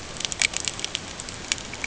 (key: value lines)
label: ambient
recorder: HydroMoth